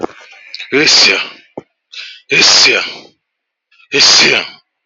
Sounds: Sneeze